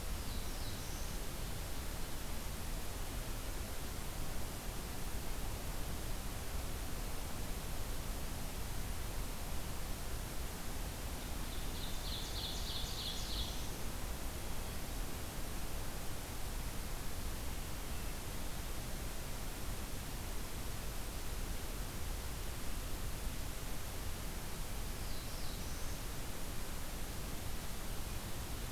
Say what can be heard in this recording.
Black-throated Blue Warbler, Ovenbird